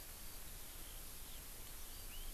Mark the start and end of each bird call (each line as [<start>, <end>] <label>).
[0.00, 2.34] Eurasian Skylark (Alauda arvensis)